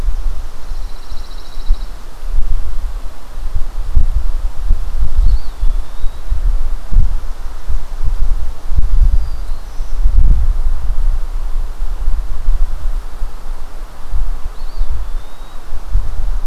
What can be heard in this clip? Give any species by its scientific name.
Setophaga pinus, Contopus virens, Setophaga virens